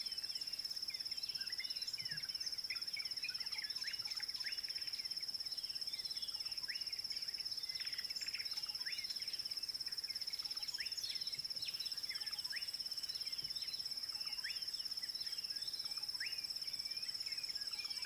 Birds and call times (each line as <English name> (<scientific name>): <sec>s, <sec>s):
Slate-colored Boubou (Laniarius funebris): 16.2s